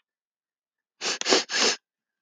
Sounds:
Sniff